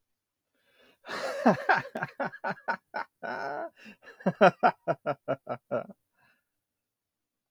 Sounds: Laughter